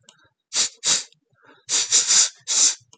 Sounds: Sniff